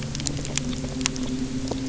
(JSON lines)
{"label": "anthrophony, boat engine", "recorder": "SoundTrap 300"}